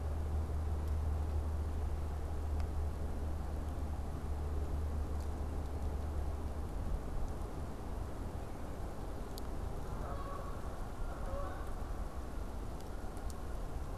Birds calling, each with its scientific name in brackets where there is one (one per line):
Canada Goose (Branta canadensis)